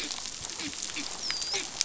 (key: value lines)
label: biophony, dolphin
recorder: SoundTrap 500